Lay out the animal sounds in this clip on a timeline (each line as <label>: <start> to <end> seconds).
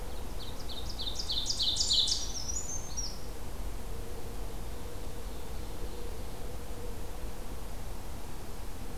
Ovenbird (Seiurus aurocapilla): 0.3 to 2.3 seconds
Brown Creeper (Certhia americana): 1.6 to 3.2 seconds